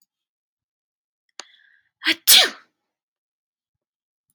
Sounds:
Sneeze